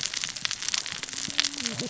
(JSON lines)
{"label": "biophony, cascading saw", "recorder": "SoundTrap 600 or HydroMoth"}